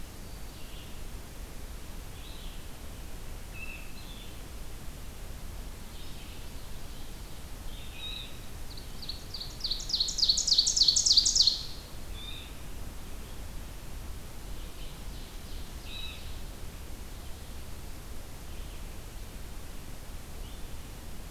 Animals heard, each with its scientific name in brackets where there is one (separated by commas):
Ovenbird (Seiurus aurocapilla), Black-throated Green Warbler (Setophaga virens), unidentified call, Red-eyed Vireo (Vireo olivaceus)